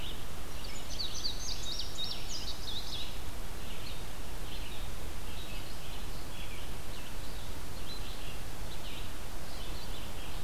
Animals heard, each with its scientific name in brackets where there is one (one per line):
Indigo Bunting (Passerina cyanea)
Red-eyed Vireo (Vireo olivaceus)